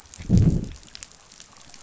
{"label": "biophony, growl", "recorder": "SoundTrap 500"}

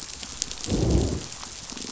{"label": "biophony, growl", "recorder": "SoundTrap 500"}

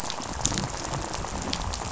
{"label": "biophony, rattle", "recorder": "SoundTrap 500"}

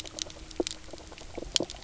{"label": "biophony, knock croak", "recorder": "SoundTrap 300"}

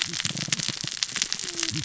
{"label": "biophony, cascading saw", "recorder": "SoundTrap 600 or HydroMoth"}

